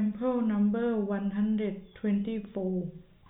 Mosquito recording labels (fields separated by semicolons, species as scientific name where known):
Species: no mosquito; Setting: cup